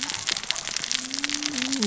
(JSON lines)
{"label": "biophony, cascading saw", "recorder": "SoundTrap 600 or HydroMoth"}